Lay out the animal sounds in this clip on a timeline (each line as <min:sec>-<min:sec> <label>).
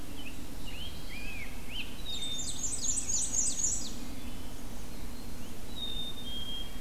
0:00.0-0:01.4 Black-throated Blue Warbler (Setophaga caerulescens)
0:00.1-0:01.9 Rose-breasted Grosbeak (Pheucticus ludovicianus)
0:01.6-0:04.1 Ovenbird (Seiurus aurocapilla)
0:01.9-0:02.7 Black-capped Chickadee (Poecile atricapillus)
0:02.0-0:04.0 Black-and-white Warbler (Mniotilta varia)
0:03.9-0:04.6 Wood Thrush (Hylocichla mustelina)
0:05.7-0:06.8 Black-capped Chickadee (Poecile atricapillus)